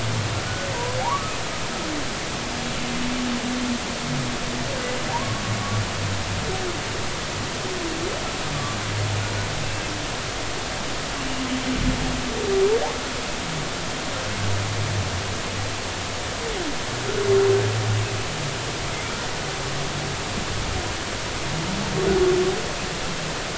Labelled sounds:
1.0	1.3	humpback whale, 0.80 to 1.2 kHz
5.1	5.5	humpback whale, 0.80 to 1.2 kHz

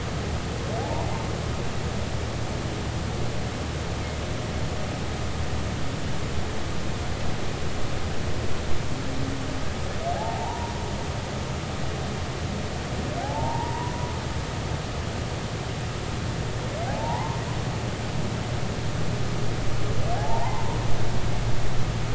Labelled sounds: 0.8	1.1	humpback whale, 0.80 to 1.0 kHz
10.1	10.7	humpback whale, 0.80 to 1.0 kHz
13.2	14.0	humpback whale, 0.80 to 1.0 kHz
16.9	17.4	humpback whale, 0.80 to 1.1 kHz
20.1	20.8	humpback whale, 0.80 to 1.1 kHz

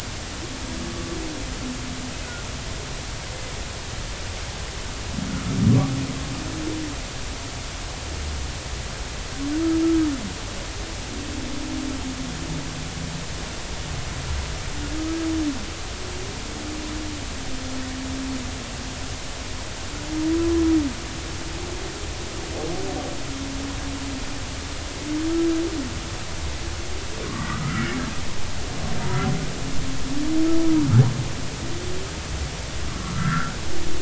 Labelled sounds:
5.3	5.6	humpback whale, 1.2 to 1.5 kHz
9.8	10.1	humpback whale, 1.2 to 1.4 kHz
27.2	27.9	humpback whale, 1.0 to 1.5 kHz
33.0	33.6	humpback whale, 1.1 to 1.8 kHz

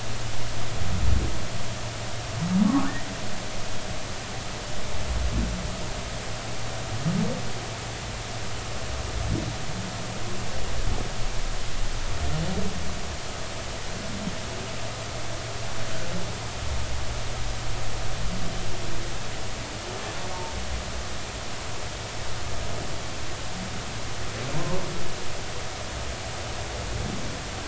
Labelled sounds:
24.5	24.8	humpback whale, 0.90 to 1.1 kHz

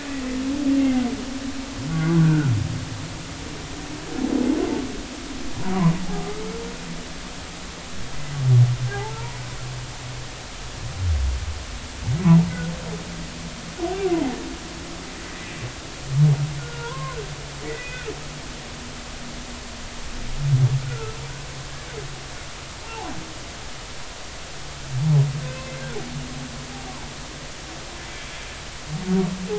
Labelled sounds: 0.8	2.5	humpback whale, 1.1 to 2.2 kHz
6.1	6.4	humpback whale, 1.2 to 1.3 kHz
8.9	9.4	humpback whale, 0.80 to 1.0 kHz
14.1	14.4	humpback whale, 0.80 to 1.1 kHz
15.2	15.5	humpback whale, 1.9 to 2.0 kHz
16.6	18.1	humpback whale, 0.90 to 2.6 kHz
20.9	21.1	humpback whale, 1.2 to 1.5 kHz
22.8	23.1	humpback whale, 0.80 to 0.96 kHz
25.5	25.8	humpback whale, 2.5 to 2.7 kHz

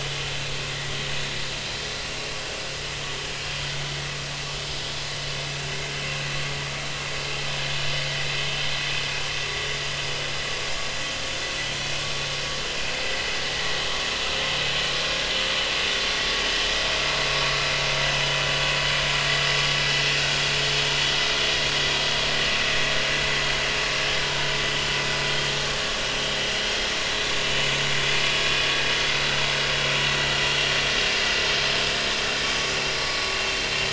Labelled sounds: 22.5	22.7	vessel noise, 2.5 to 2.7 kHz

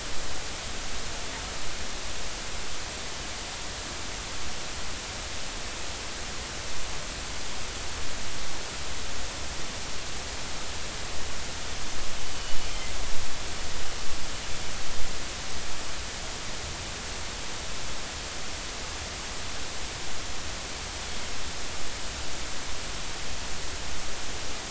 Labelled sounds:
12.3	12.6	killer whale, northern resident, G clan, GG subclan, 2.8 to 3.0 kHz

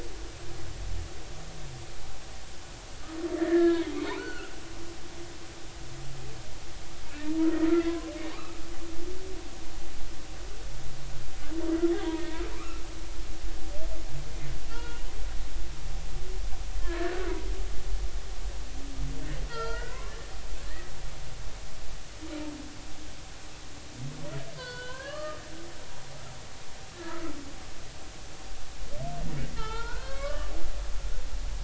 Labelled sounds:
3.3	4.5	humpback whale, 0.93 to 4.5 kHz
8.3	8.6	humpback whale, 1.0 to 1.3 kHz
12.1	12.8	humpback whale, 0.90 to 2.3 kHz
14.7	15.0	humpback whale, 0.90 to 3.4 kHz
16.8	17.3	humpback whale, 1.2 to 1.9 kHz
19.5	20.9	humpback whale, 0.86 to 4.8 kHz
24.5	25.4	humpback whale, 0.96 to 4.8 kHz
27.0	27.3	humpback whale, 1.2 to 1.4 kHz
29.6	30.5	humpback whale, 0.83 to 4.5 kHz

